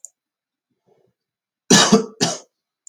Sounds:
Cough